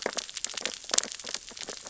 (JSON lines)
{"label": "biophony, sea urchins (Echinidae)", "recorder": "SoundTrap 600 or HydroMoth"}